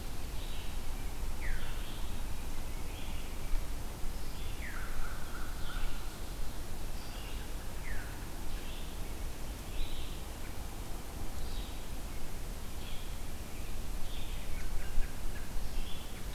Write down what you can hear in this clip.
Red-eyed Vireo, Veery, American Crow, American Robin